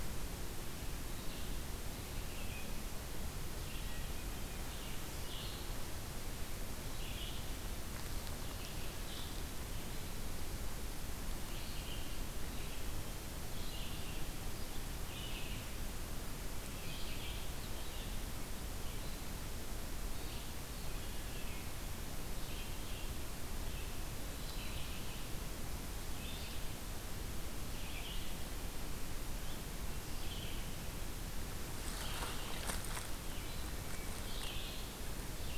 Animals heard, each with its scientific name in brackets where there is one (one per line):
Red-eyed Vireo (Vireo olivaceus)